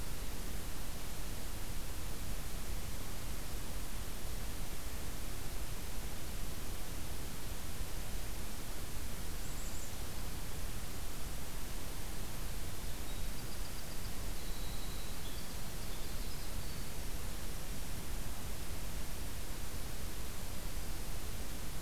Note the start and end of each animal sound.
9.3s-10.0s: Black-capped Chickadee (Poecile atricapillus)
12.8s-17.2s: Winter Wren (Troglodytes hiemalis)

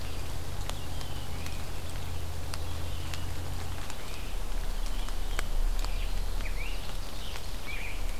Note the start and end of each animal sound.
5.2s-8.2s: Scarlet Tanager (Piranga olivacea)

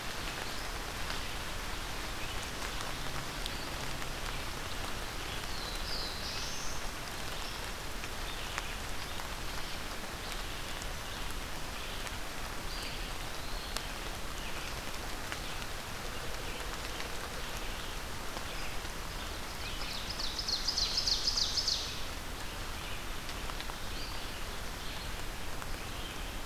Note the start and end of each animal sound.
0.0s-26.5s: Red-eyed Vireo (Vireo olivaceus)
5.2s-7.1s: Black-throated Blue Warbler (Setophaga caerulescens)
12.6s-13.9s: Eastern Wood-Pewee (Contopus virens)
19.5s-22.1s: Ovenbird (Seiurus aurocapilla)

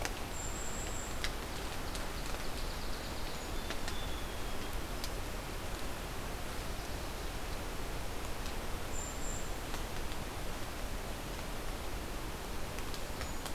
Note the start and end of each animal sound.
0.2s-1.3s: Golden-crowned Kinglet (Regulus satrapa)
1.6s-4.9s: Song Sparrow (Melospiza melodia)
8.7s-9.9s: Golden-crowned Kinglet (Regulus satrapa)

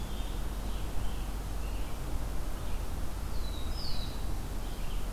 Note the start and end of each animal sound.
0.0s-0.6s: Eastern Wood-Pewee (Contopus virens)
0.0s-2.1s: Scarlet Tanager (Piranga olivacea)
0.0s-5.1s: Red-eyed Vireo (Vireo olivaceus)
3.1s-4.6s: Black-throated Blue Warbler (Setophaga caerulescens)

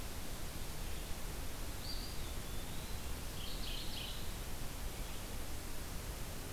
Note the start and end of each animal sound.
1.7s-3.2s: Eastern Wood-Pewee (Contopus virens)
3.2s-4.4s: Mourning Warbler (Geothlypis philadelphia)

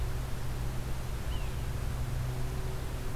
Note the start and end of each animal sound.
1.2s-1.6s: Yellow-bellied Sapsucker (Sphyrapicus varius)

